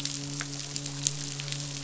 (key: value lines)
label: biophony, midshipman
recorder: SoundTrap 500